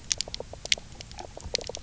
{"label": "biophony, knock croak", "recorder": "SoundTrap 300"}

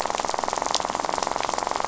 {"label": "biophony, rattle", "recorder": "SoundTrap 500"}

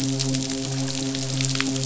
{"label": "biophony, midshipman", "recorder": "SoundTrap 500"}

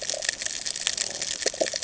{"label": "ambient", "recorder": "HydroMoth"}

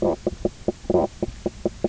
{"label": "biophony, knock croak", "recorder": "SoundTrap 300"}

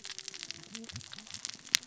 {"label": "biophony, cascading saw", "recorder": "SoundTrap 600 or HydroMoth"}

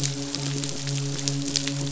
{"label": "biophony, midshipman", "recorder": "SoundTrap 500"}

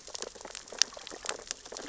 {"label": "biophony, sea urchins (Echinidae)", "recorder": "SoundTrap 600 or HydroMoth"}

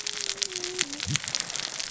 {"label": "biophony, cascading saw", "recorder": "SoundTrap 600 or HydroMoth"}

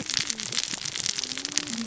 {"label": "biophony, cascading saw", "recorder": "SoundTrap 600 or HydroMoth"}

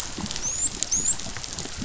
{"label": "biophony, dolphin", "recorder": "SoundTrap 500"}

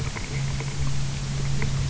{"label": "anthrophony, boat engine", "recorder": "SoundTrap 300"}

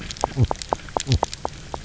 {"label": "biophony, knock croak", "recorder": "SoundTrap 300"}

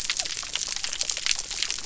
{"label": "biophony", "recorder": "SoundTrap 300"}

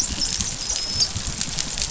{"label": "biophony, dolphin", "recorder": "SoundTrap 500"}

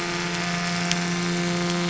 {"label": "anthrophony, boat engine", "recorder": "SoundTrap 500"}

